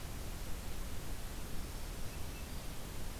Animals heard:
forest ambience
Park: Acadia National Park